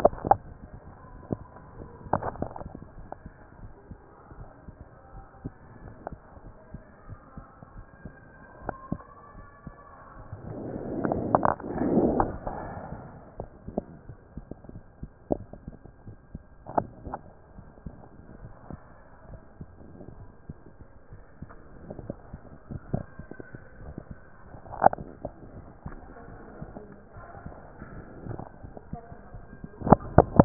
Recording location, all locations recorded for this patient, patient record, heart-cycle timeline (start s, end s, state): mitral valve (MV)
pulmonary valve (PV)+tricuspid valve (TV)+mitral valve (MV)
#Age: Child
#Sex: Female
#Height: 101.0 cm
#Weight: 17.4 kg
#Pregnancy status: False
#Murmur: Absent
#Murmur locations: nan
#Most audible location: nan
#Systolic murmur timing: nan
#Systolic murmur shape: nan
#Systolic murmur grading: nan
#Systolic murmur pitch: nan
#Systolic murmur quality: nan
#Diastolic murmur timing: nan
#Diastolic murmur shape: nan
#Diastolic murmur grading: nan
#Diastolic murmur pitch: nan
#Diastolic murmur quality: nan
#Outcome: Normal
#Campaign: 2014 screening campaign
0.00	2.73	unannotated
2.73	2.98	diastole
2.98	3.08	S1
3.08	3.25	systole
3.25	3.31	S2
3.31	3.60	diastole
3.60	3.72	S1
3.72	3.90	systole
3.90	3.98	S2
3.98	4.36	diastole
4.36	4.48	S1
4.48	4.66	systole
4.66	4.74	S2
4.74	5.14	diastole
5.14	5.26	S1
5.26	5.44	systole
5.44	5.52	S2
5.52	5.82	diastole
5.82	5.94	S1
5.94	6.10	systole
6.10	6.20	S2
6.20	6.44	diastole
6.44	6.54	S1
6.54	6.72	systole
6.72	6.82	S2
6.82	7.08	diastole
7.08	7.18	S1
7.18	7.36	systole
7.36	7.46	S2
7.46	7.74	diastole
7.74	7.86	S1
7.86	8.04	systole
8.04	8.12	S2
8.12	8.43	diastole
8.43	30.45	unannotated